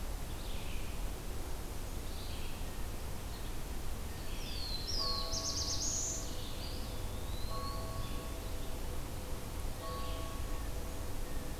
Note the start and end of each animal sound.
0.0s-10.3s: Red-eyed Vireo (Vireo olivaceus)
4.3s-6.4s: Black-throated Blue Warbler (Setophaga caerulescens)
6.5s-7.8s: Eastern Wood-Pewee (Contopus virens)

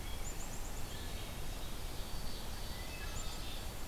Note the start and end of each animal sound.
0.0s-0.9s: Black-capped Chickadee (Poecile atricapillus)
0.8s-1.5s: Wood Thrush (Hylocichla mustelina)
1.1s-3.9s: White-throated Sparrow (Zonotrichia albicollis)
2.6s-3.3s: Wood Thrush (Hylocichla mustelina)
3.0s-3.9s: Black-capped Chickadee (Poecile atricapillus)

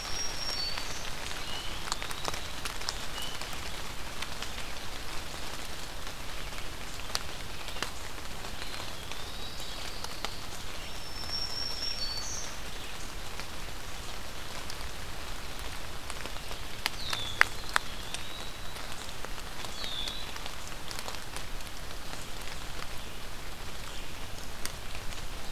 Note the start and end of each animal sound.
0.0s-1.1s: Black-throated Green Warbler (Setophaga virens)
0.0s-3.5s: unidentified call
1.3s-2.8s: Eastern Wood-Pewee (Contopus virens)
8.5s-9.7s: Eastern Wood-Pewee (Contopus virens)
9.0s-10.5s: Pine Warbler (Setophaga pinus)
10.8s-12.6s: Black-throated Green Warbler (Setophaga virens)
16.9s-17.4s: Red-winged Blackbird (Agelaius phoeniceus)
17.4s-18.6s: Eastern Wood-Pewee (Contopus virens)
19.6s-20.4s: Red-winged Blackbird (Agelaius phoeniceus)

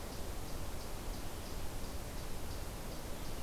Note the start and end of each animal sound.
0.0s-3.4s: Eastern Chipmunk (Tamias striatus)

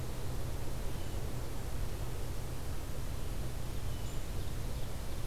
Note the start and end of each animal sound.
0.9s-1.2s: Blue Jay (Cyanocitta cristata)
3.5s-5.3s: Ovenbird (Seiurus aurocapilla)
3.7s-4.2s: Blue Jay (Cyanocitta cristata)

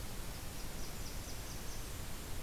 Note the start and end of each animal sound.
0.2s-2.4s: Blackburnian Warbler (Setophaga fusca)

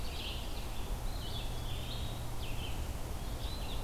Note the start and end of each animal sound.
0.0s-0.7s: Ovenbird (Seiurus aurocapilla)
0.0s-3.8s: Red-eyed Vireo (Vireo olivaceus)
1.0s-2.2s: Eastern Wood-Pewee (Contopus virens)

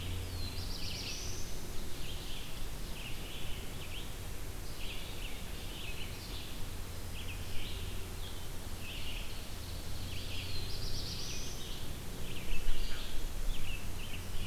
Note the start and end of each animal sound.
0.0s-14.5s: Red-eyed Vireo (Vireo olivaceus)
0.2s-1.8s: Black-throated Blue Warbler (Setophaga caerulescens)
1.7s-3.5s: Ovenbird (Seiurus aurocapilla)
8.6s-10.8s: Ovenbird (Seiurus aurocapilla)
10.0s-11.9s: Black-throated Blue Warbler (Setophaga caerulescens)

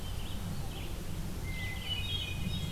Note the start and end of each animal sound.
0.1s-2.7s: Red-eyed Vireo (Vireo olivaceus)
1.3s-2.7s: Hermit Thrush (Catharus guttatus)

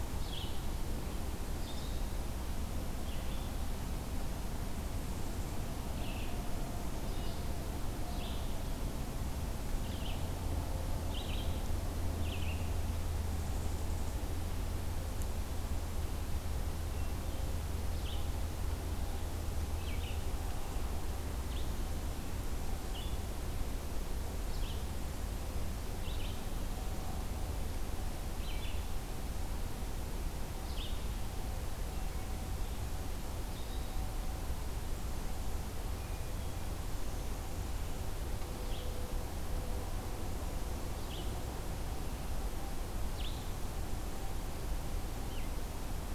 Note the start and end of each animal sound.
0.0s-46.1s: Red-eyed Vireo (Vireo olivaceus)

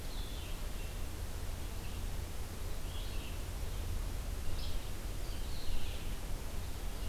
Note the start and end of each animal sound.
0.0s-7.1s: Blue-headed Vireo (Vireo solitarius)
4.5s-4.9s: Yellow-bellied Flycatcher (Empidonax flaviventris)

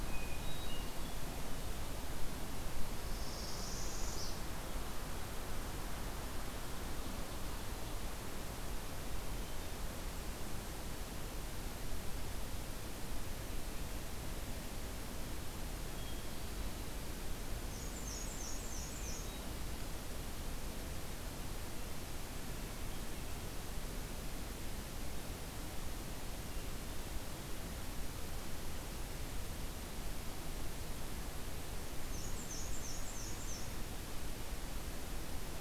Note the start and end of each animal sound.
0.0s-1.4s: Hermit Thrush (Catharus guttatus)
2.9s-4.3s: Northern Parula (Setophaga americana)
15.8s-17.0s: Hermit Thrush (Catharus guttatus)
17.6s-19.3s: Black-and-white Warbler (Mniotilta varia)
18.9s-19.8s: Hermit Thrush (Catharus guttatus)
32.1s-33.7s: Black-and-white Warbler (Mniotilta varia)

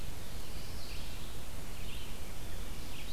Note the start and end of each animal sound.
0.0s-3.1s: Red-eyed Vireo (Vireo olivaceus)
0.5s-1.6s: Mourning Warbler (Geothlypis philadelphia)

